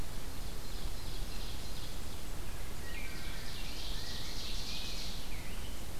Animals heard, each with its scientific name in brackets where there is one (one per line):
Rose-breasted Grosbeak (Pheucticus ludovicianus)
Ovenbird (Seiurus aurocapilla)
Wood Thrush (Hylocichla mustelina)